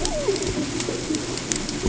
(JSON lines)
{"label": "ambient", "recorder": "HydroMoth"}